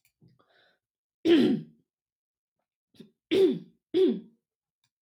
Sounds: Throat clearing